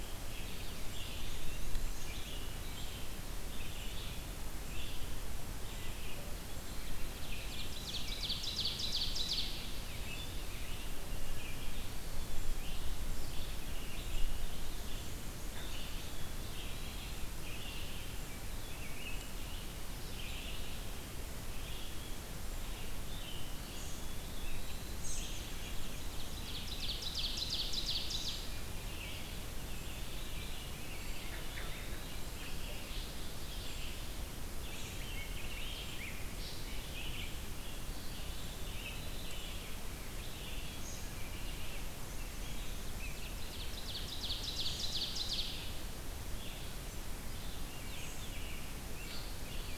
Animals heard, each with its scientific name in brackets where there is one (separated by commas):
Ovenbird (Seiurus aurocapilla), Rose-breasted Grosbeak (Pheucticus ludovicianus), Eastern Wood-Pewee (Contopus virens), Brown Creeper (Certhia americana), Red-eyed Vireo (Vireo olivaceus), American Robin (Turdus migratorius)